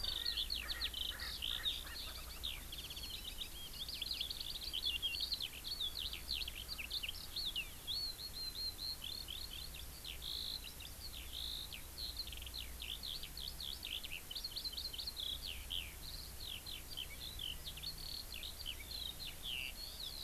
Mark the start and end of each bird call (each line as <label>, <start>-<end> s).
Erckel's Francolin (Pternistis erckelii), 0.0-2.6 s
Eurasian Skylark (Alauda arvensis), 0.0-20.2 s